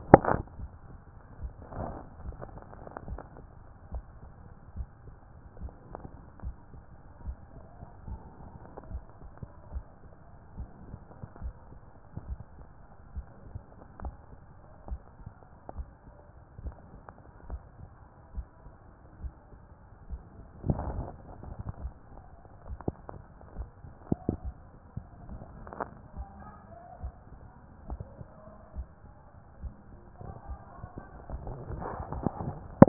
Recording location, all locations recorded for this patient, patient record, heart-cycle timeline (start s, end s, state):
mitral valve (MV)
aortic valve (AV)+pulmonary valve (PV)+tricuspid valve (TV)+mitral valve (MV)
#Age: nan
#Sex: Female
#Height: nan
#Weight: nan
#Pregnancy status: True
#Murmur: Absent
#Murmur locations: nan
#Most audible location: nan
#Systolic murmur timing: nan
#Systolic murmur shape: nan
#Systolic murmur grading: nan
#Systolic murmur pitch: nan
#Systolic murmur quality: nan
#Diastolic murmur timing: nan
#Diastolic murmur shape: nan
#Diastolic murmur grading: nan
#Diastolic murmur pitch: nan
#Diastolic murmur quality: nan
#Outcome: Abnormal
#Campaign: 2014 screening campaign
0.00	0.06	systole
0.06	0.22	S2
0.22	0.58	diastole
0.58	0.72	S1
0.72	0.90	systole
0.90	1.00	S2
1.00	1.40	diastole
1.40	1.54	S1
1.54	1.72	systole
1.72	1.88	S2
1.88	2.24	diastole
2.24	2.38	S1
2.38	2.52	systole
2.52	2.62	S2
2.62	3.06	diastole
3.06	3.22	S1
3.22	3.40	systole
3.40	3.48	S2
3.48	3.92	diastole
3.92	4.06	S1
4.06	4.22	systole
4.22	4.32	S2
4.32	4.74	diastole
4.74	4.88	S1
4.88	5.06	systole
5.06	5.14	S2
5.14	5.60	diastole
5.60	5.72	S1
5.72	5.92	systole
5.92	6.04	S2
6.04	6.44	diastole
6.44	6.56	S1
6.56	6.74	systole
6.74	6.82	S2
6.82	7.24	diastole
7.24	7.38	S1
7.38	7.56	systole
7.56	7.62	S2
7.62	8.06	diastole
8.06	8.22	S1
8.22	8.42	systole
8.42	8.52	S2
8.52	8.90	diastole
8.90	9.04	S1
9.04	9.22	systole
9.22	9.32	S2
9.32	9.72	diastole
9.72	9.86	S1
9.86	10.06	systole
10.06	10.12	S2
10.12	10.56	diastole
10.56	10.68	S1
10.68	10.88	systole
10.88	11.00	S2
11.00	11.42	diastole
11.42	11.54	S1
11.54	11.72	systole
11.72	11.82	S2
11.82	12.26	diastole
12.26	12.40	S1
12.40	12.58	systole
12.58	12.68	S2
12.68	13.14	diastole
13.14	13.26	S1
13.26	13.50	systole
13.50	13.62	S2
13.62	14.02	diastole
14.02	14.16	S1
14.16	14.32	systole
14.32	14.38	S2
14.38	14.88	diastole
14.88	15.00	S1
15.00	15.20	systole
15.20	15.32	S2
15.32	15.74	diastole
15.74	15.88	S1
15.88	16.08	systole
16.08	16.14	S2
16.14	16.62	diastole
16.62	16.74	S1
16.74	16.94	systole
16.94	17.00	S2
17.00	17.48	diastole
17.48	17.62	S1
17.62	17.80	systole
17.80	17.88	S2
17.88	18.34	diastole
18.34	18.48	S1
18.48	18.66	systole
18.66	18.72	S2
18.72	19.18	diastole
19.18	19.32	S1
19.32	19.52	systole
19.52	19.58	S2
19.58	20.06	diastole
20.06	20.22	S1
20.22	20.38	systole
20.38	20.46	S2
20.46	20.88	diastole
20.88	21.06	S1
21.06	21.26	systole
21.26	21.36	S2
21.36	21.80	diastole
21.80	21.94	S1
21.94	22.12	systole
22.12	22.18	S2
22.18	22.66	diastole
22.66	22.80	S1
22.80	23.00	systole
23.00	23.08	S2
23.08	23.56	diastole
23.56	23.70	S1
23.70	23.84	systole
23.84	23.94	S2
23.94	24.42	diastole
24.42	24.56	S1
24.56	24.74	systole
24.74	24.82	S2
24.82	25.28	diastole
25.28	25.42	S1
25.42	25.60	systole
25.60	25.72	S2
25.72	26.16	diastole
26.16	26.28	S1
26.28	26.46	systole
26.46	26.54	S2
26.54	27.02	diastole
27.02	27.14	S1
27.14	27.32	systole
27.32	27.38	S2
27.38	27.86	diastole
27.86	28.00	S1
28.00	28.18	systole
28.18	28.26	S2
28.26	28.76	diastole
28.76	28.88	S1
28.88	29.10	systole
29.10	29.18	S2
29.18	29.62	diastole
29.62	29.74	S1
29.74	29.92	systole
29.92	29.98	S2
29.98	30.48	diastole
30.48	30.60	S1
30.60	30.80	systole
30.80	30.90	S2
30.90	31.44	diastole
31.44	31.62	S1
31.62	31.80	systole
31.80	31.96	S2
31.96	32.40	diastole
32.40	32.58	S1
32.58	32.74	systole
32.74	32.88	S2